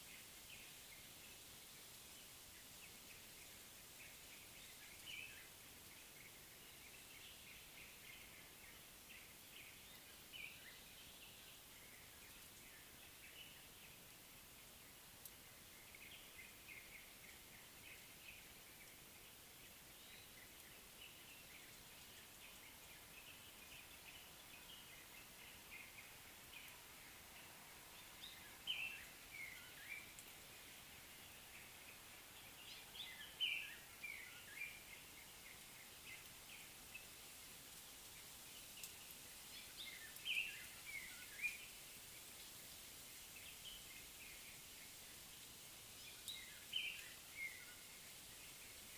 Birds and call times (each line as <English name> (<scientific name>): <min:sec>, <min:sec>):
Cape Robin-Chat (Cossypha caffra): 0:33.5